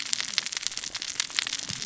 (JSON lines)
{"label": "biophony, cascading saw", "recorder": "SoundTrap 600 or HydroMoth"}